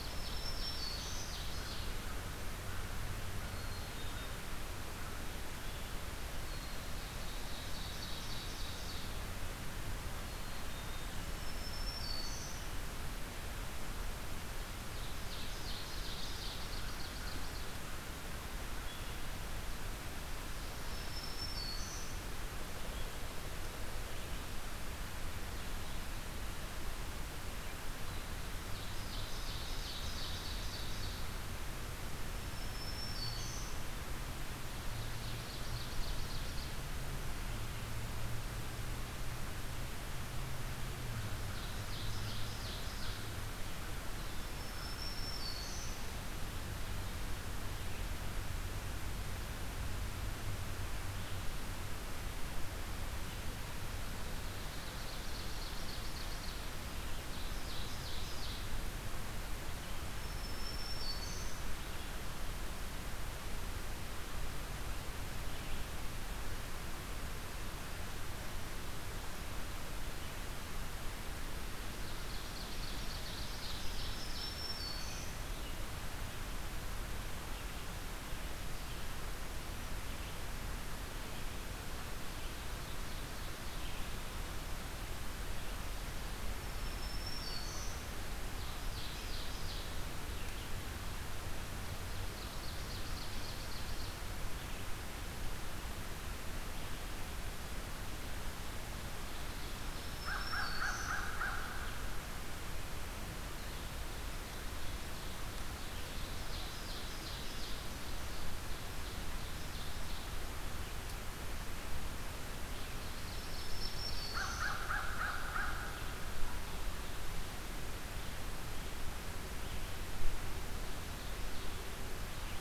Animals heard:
Black-throated Green Warbler (Setophaga virens), American Crow (Corvus brachyrhynchos), Ovenbird (Seiurus aurocapilla), Red-eyed Vireo (Vireo olivaceus), Black-capped Chickadee (Poecile atricapillus)

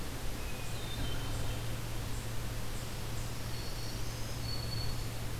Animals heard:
Black-throated Green Warbler (Setophaga virens), Hermit Thrush (Catharus guttatus)

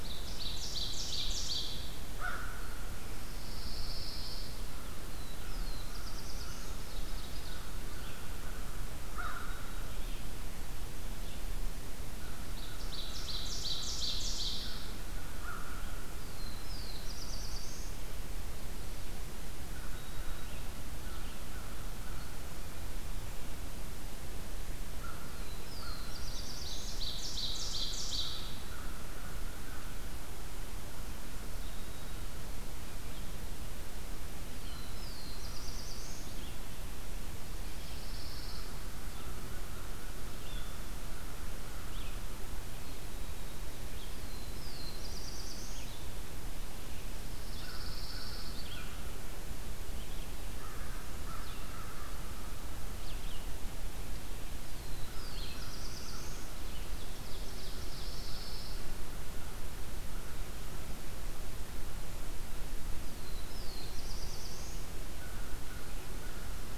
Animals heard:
Red-eyed Vireo (Vireo olivaceus), Black-throated Blue Warbler (Setophaga caerulescens), American Crow (Corvus brachyrhynchos), Ovenbird (Seiurus aurocapilla), Pine Warbler (Setophaga pinus)

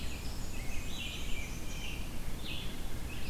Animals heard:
Black-and-white Warbler (Mniotilta varia), Red-eyed Vireo (Vireo olivaceus), American Robin (Turdus migratorius)

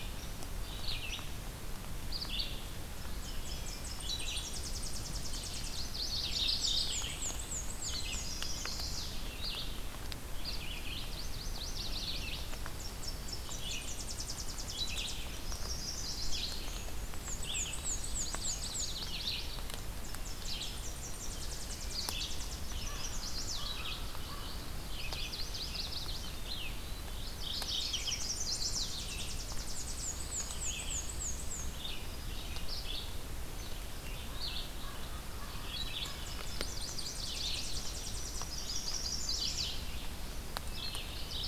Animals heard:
Tennessee Warbler (Leiothlypis peregrina), Red-eyed Vireo (Vireo olivaceus), Mourning Warbler (Geothlypis philadelphia), Black-and-white Warbler (Mniotilta varia), Chestnut-sided Warbler (Setophaga pensylvanica), Yellow-rumped Warbler (Setophaga coronata)

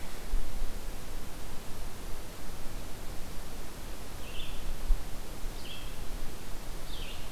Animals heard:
Red-eyed Vireo (Vireo olivaceus)

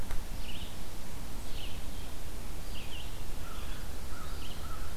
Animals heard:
Red-eyed Vireo (Vireo olivaceus), American Crow (Corvus brachyrhynchos)

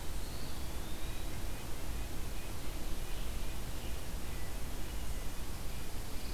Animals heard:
Eastern Wood-Pewee (Contopus virens), Red-breasted Nuthatch (Sitta canadensis)

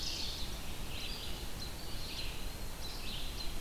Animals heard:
Red-eyed Vireo (Vireo olivaceus), American Robin (Turdus migratorius)

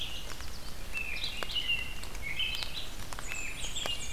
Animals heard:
American Robin (Turdus migratorius), Yellow Warbler (Setophaga petechia), Red-eyed Vireo (Vireo olivaceus), Blackburnian Warbler (Setophaga fusca)

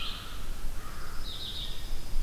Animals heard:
American Crow (Corvus brachyrhynchos), Pine Warbler (Setophaga pinus), Red-eyed Vireo (Vireo olivaceus)

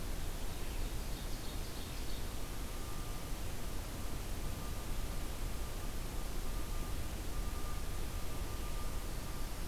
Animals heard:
Ovenbird (Seiurus aurocapilla)

